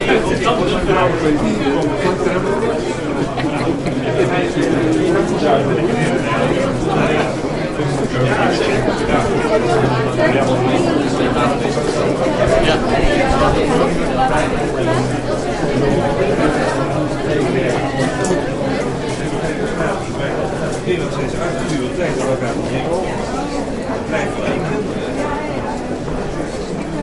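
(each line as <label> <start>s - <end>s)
Many people are having unintelligible conversations in a busy place. 0.1s - 27.0s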